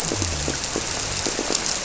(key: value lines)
label: biophony
recorder: SoundTrap 300